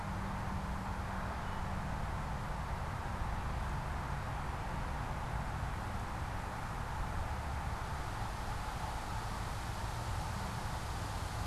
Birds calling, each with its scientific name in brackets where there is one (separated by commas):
unidentified bird